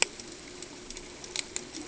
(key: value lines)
label: ambient
recorder: HydroMoth